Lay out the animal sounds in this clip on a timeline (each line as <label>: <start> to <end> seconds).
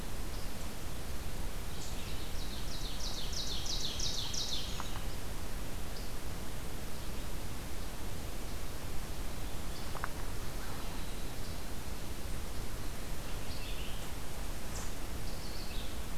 Ovenbird (Seiurus aurocapilla): 1.7 to 4.9 seconds
Winter Wren (Troglodytes hiemalis): 9.9 to 12.2 seconds
Red-eyed Vireo (Vireo olivaceus): 13.0 to 16.0 seconds